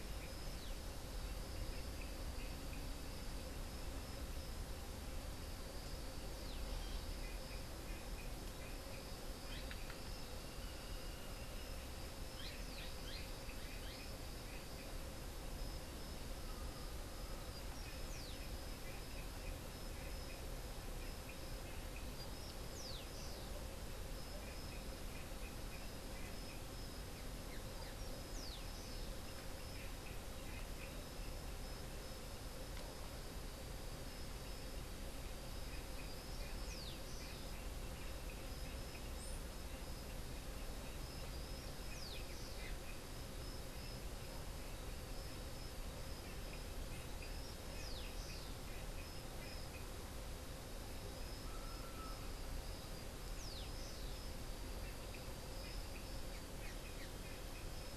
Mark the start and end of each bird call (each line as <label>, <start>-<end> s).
unidentified bird, 0.3-0.9 s
unidentified bird, 6.2-6.7 s
unidentified bird, 9.3-10.1 s
unidentified bird, 10.4-11.9 s
unidentified bird, 12.2-13.5 s
Rufous-collared Sparrow (Zonotrichia capensis), 17.4-18.8 s
Rufous-collared Sparrow (Zonotrichia capensis), 22.0-23.6 s
Rufous-collared Sparrow (Zonotrichia capensis), 28.0-29.2 s
Rufous-collared Sparrow (Zonotrichia capensis), 36.4-37.6 s
Rufous-collared Sparrow (Zonotrichia capensis), 41.2-42.8 s
Rufous-collared Sparrow (Zonotrichia capensis), 47.5-48.7 s
Rufous-collared Sparrow (Zonotrichia capensis), 53.0-54.3 s
Black-chested Jay (Cyanocorax affinis), 55.7-57.5 s